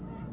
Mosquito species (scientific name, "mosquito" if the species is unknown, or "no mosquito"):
Aedes albopictus